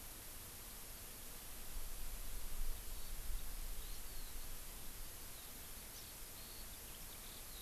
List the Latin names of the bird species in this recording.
Alauda arvensis